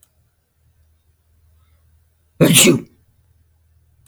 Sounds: Sneeze